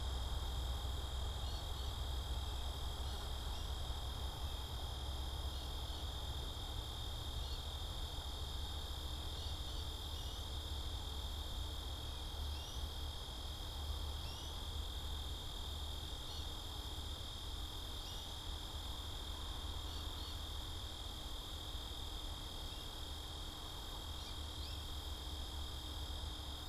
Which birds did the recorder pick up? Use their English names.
American Goldfinch